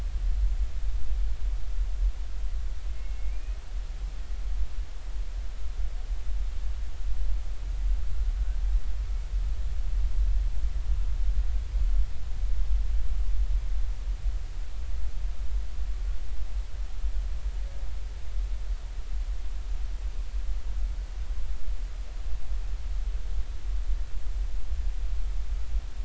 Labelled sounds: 2.9	3.6	humpback whale, 2.1 to 2.6 kHz

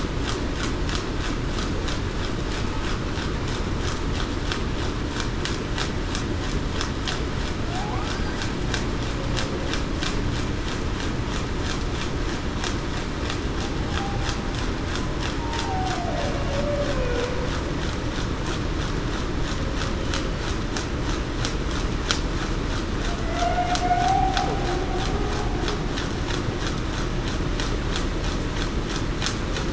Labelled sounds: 15.4	15.7	humpback whale, 0.89 to 0.96 kHz
16.5	17.5	humpback whale, 0.45 to 0.61 kHz
23.2	24.5	humpback whale, 0.63 to 0.82 kHz

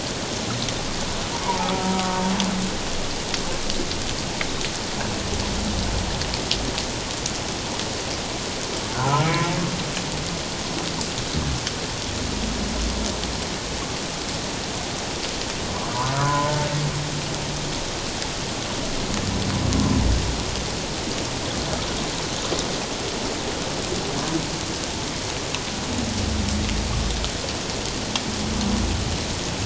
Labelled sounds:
1.4	1.9	humpback whale, 0.78 to 1.4 kHz
8.9	9.5	humpback whale, 0.78 to 2.4 kHz
16.1	16.5	humpback whale, 0.94 to 1.5 kHz

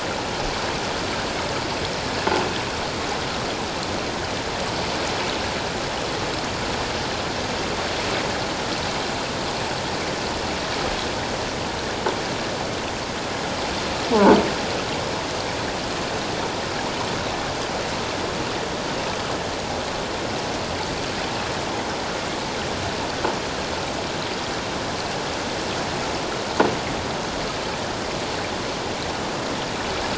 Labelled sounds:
14.1	14.4	croaking sound likely from a nearby submerged object, 0.84 to 1.2 kHz

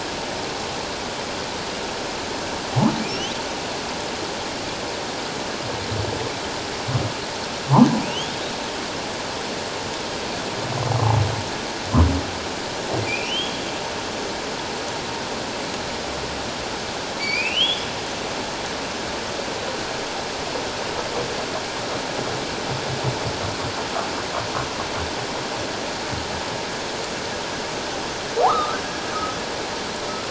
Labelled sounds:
8.0	8.3	humpback whale, 2.3 to 3.5 kHz
13.1	13.6	humpback whale, 2.2 to 3.4 kHz
17.2	17.9	humpback whale, 2.1 to 5.0 kHz
28.4	28.8	humpback whale, 0.78 to 1.4 kHz

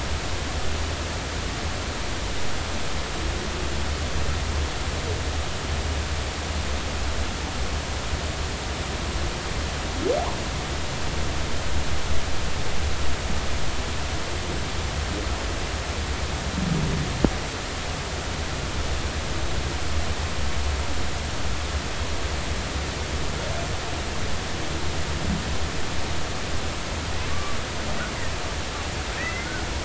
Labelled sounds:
27.3	27.6	humpback whale, 1.1 to 1.2 kHz
29.2	29.6	humpback whale, 1.4 to 2.1 kHz

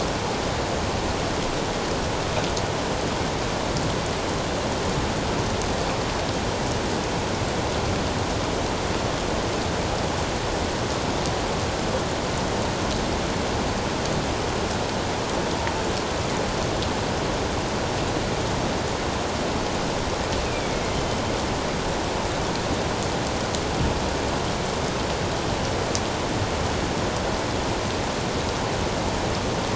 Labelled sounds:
20.4	21.0	killer whale, northern resident, A clan, AA subclan, A04 pod, 2.0 to 2.6 kHz

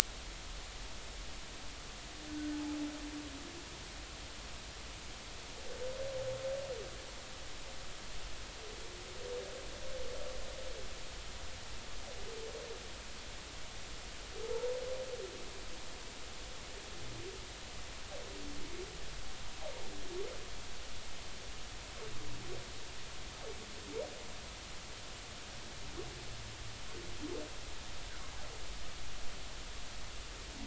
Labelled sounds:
14.5	14.8	humpback whale, 0.83 to 1.0 kHz

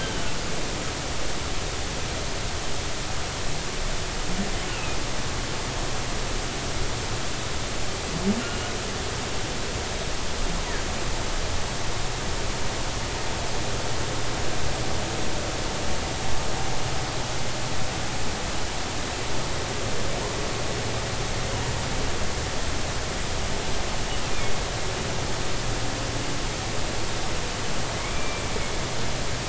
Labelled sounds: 0.0	0.2	humpback whale, 2.9 to 3.2 kHz
4.7	5.0	humpback whale, 2.4 to 2.8 kHz
8.4	8.7	humpback whale, 2.8 to 3.0 kHz
27.9	28.4	humpback whale, 2.0 to 2.4 kHz

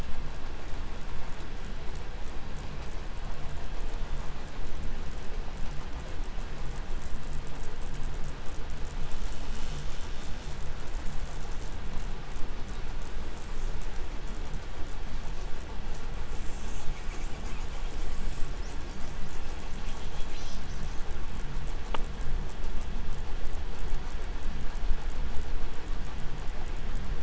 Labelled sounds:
16.0	19.0	killer whale, southern resident, call S10, 0.51 to 8.0 kHz
19.4	21.2	killer whale, southern resident, call S10, 1.6 to 7.7 kHz

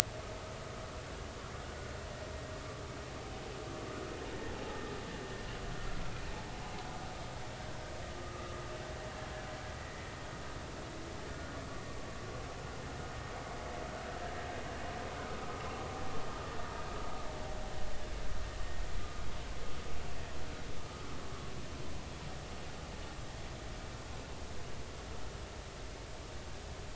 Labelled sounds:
8.2	8.6	vessel noise, 1.2 to 1.4 kHz
9.8	10.0	vessel noise, 1.8 to 2.0 kHz

